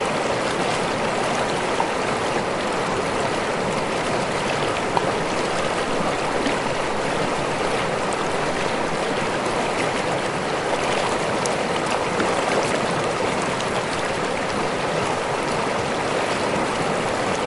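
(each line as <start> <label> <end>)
0.0 A continuous sound of flowing water. 17.5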